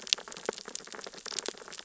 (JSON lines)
{"label": "biophony, sea urchins (Echinidae)", "recorder": "SoundTrap 600 or HydroMoth"}